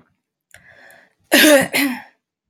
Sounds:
Throat clearing